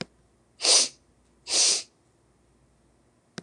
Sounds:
Sniff